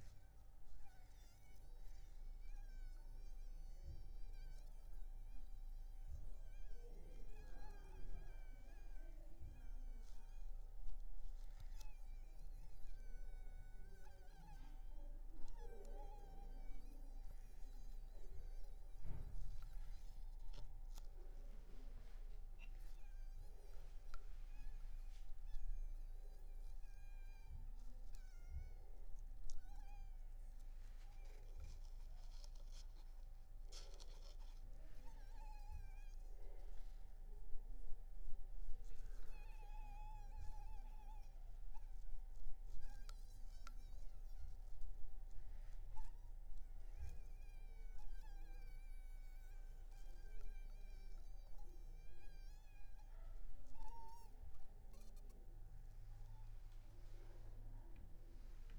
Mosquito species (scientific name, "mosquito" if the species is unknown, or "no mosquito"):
Anopheles arabiensis